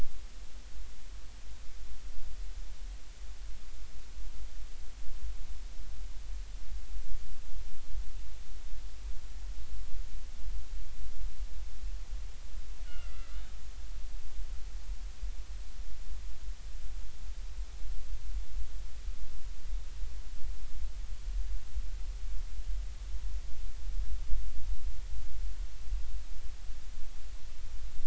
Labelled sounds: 12.9	13.4	killer whale, 1.3 to 3.0 kHz

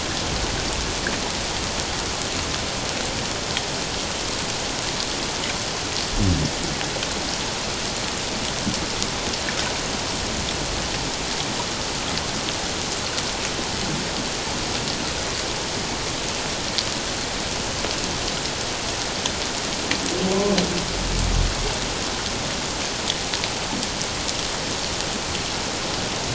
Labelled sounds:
20.3	20.6	humpback whale, 0.97 to 1.1 kHz

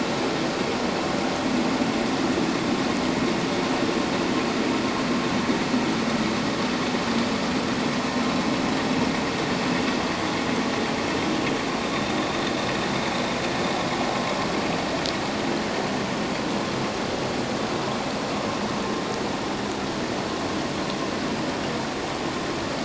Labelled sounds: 11.9	12.2	vessel noise, 3.5 to 3.7 kHz

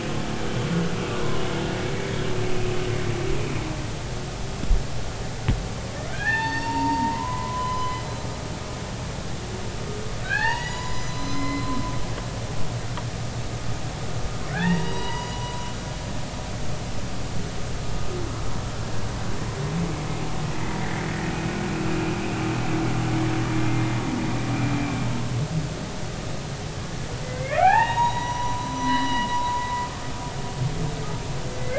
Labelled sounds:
6.1	8.0	humpback whale, 0.80 to 4.6 kHz
10.2	11.8	humpback whale, 0.80 to 7.0 kHz
14.5	15.7	humpback whale, 0.80 to 6.9 kHz
20.6	20.9	humpback whale, 1.9 to 2.1 kHz
24.7	24.9	humpback whale, 2.08 to 2.14 kHz
27.2	29.7	humpback whale, 0.80 to 6.8 kHz

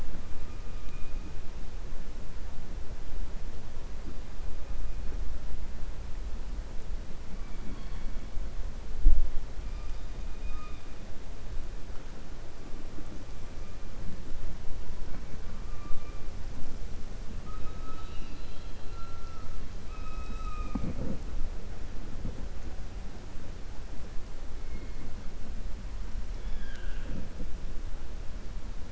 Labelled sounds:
17.8	19.4	killer whale, 1.3 to 4.9 kHz

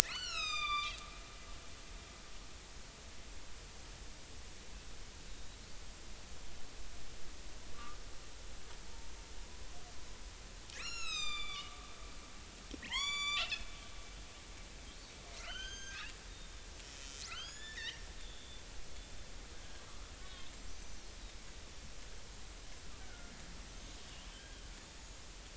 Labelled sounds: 0.0	1.0	killer whale, northern resident, A clan, 0.96 to 8.0 kHz
7.7	8.0	killer whale, northern resident, A clan, 1.1 to 1.3 kHz
10.7	11.9	killer whale, northern resident, A clan, 1.1 to 8.0 kHz
12.8	13.7	killer whale, northern resident, A clan, 0.80 to 8.0 kHz
15.4	16.0	killer whale, northern resident, A clan, 1.2 to 8.0 kHz
17.2	18.6	killer whale, northern resident, A clan, 1.2 to 7.1 kHz
20.2	20.4	killer whale, northern resident, A clan, 1.4 to 1.5 kHz
20.7	21.0	killer whale, northern resident, A clan, 5.7 to 6.2 kHz
23.0	23.3	killer whale, northern resident, A clan, 1.4 to 1.6 kHz
23.7	24.6	killer whale, northern resident, A clan, 1.5 to 6.6 kHz
24.9	25.2	killer whale, northern resident, A clan, 6.7 to 6.9 kHz

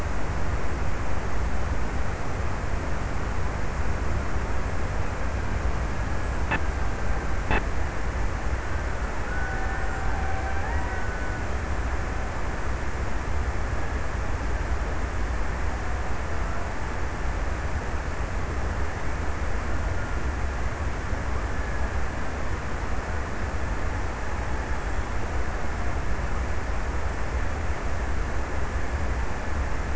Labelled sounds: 8.6	12.1	killer whale, Bigg's (transient), 0.60 to 2.1 kHz
19.2	21.1	killer whale, Bigg's (transient), 1.2 to 1.6 kHz

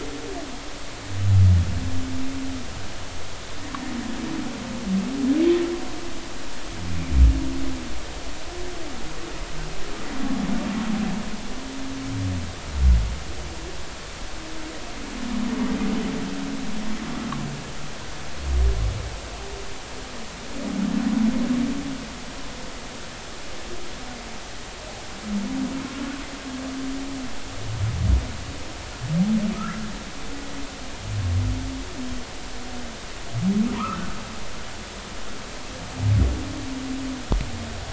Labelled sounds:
29.6	29.8	humpback whale, 1.2 to 1.8 kHz
33.7	34.1	humpback whale, 0.90 to 1.6 kHz

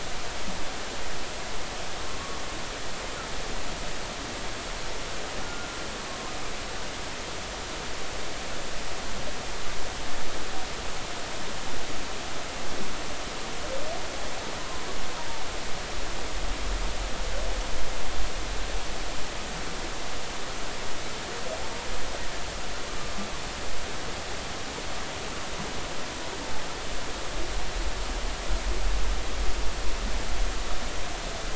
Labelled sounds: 2.0	2.4	humpback whale, 1.1 to 1.2 kHz
5.4	5.8	humpback whale, 1.3 to 1.6 kHz
14.6	14.8	humpback whale, 0.96 to 1.1 kHz

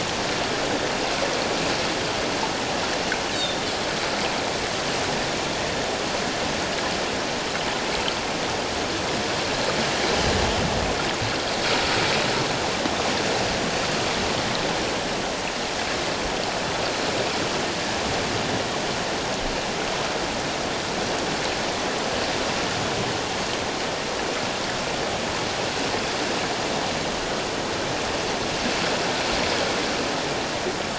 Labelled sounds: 3.3	3.7	Pacific white-sided dolphin, 3.3 to 4.0 kHz

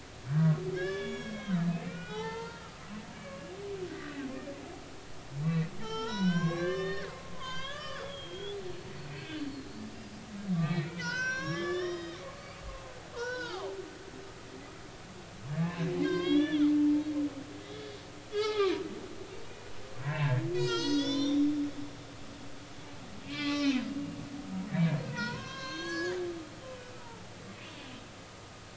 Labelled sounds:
0.3	3.5	humpback whale, 0.80 to 5.7 kHz
5.4	9.8	humpback whale, 0.83 to 6.3 kHz
10.6	12.2	humpback whale, 0.90 to 6.2 kHz
13.1	13.8	humpback whale, 0.80 to 5.1 kHz
16.0	16.7	humpback whale, 0.99 to 5.9 kHz
18.3	18.8	humpback whale, 0.80 to 4.2 kHz
20.0	21.5	humpback whale, 0.86 to 7.7 kHz
23.3	23.8	humpback whale, 1.1 to 5.3 kHz
24.7	26.2	humpback whale, 0.90 to 7.9 kHz
27.0	27.3	humpback whale, 0.80 to 0.99 kHz
27.6	27.9	humpback whale, 3.2 to 3.5 kHz

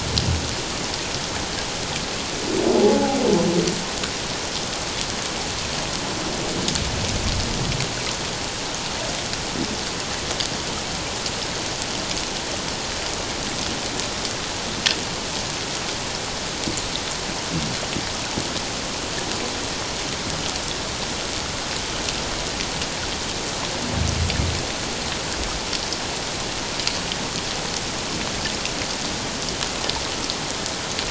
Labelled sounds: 2.8	3.2	humpback whale, 0.78 to 0.91 kHz

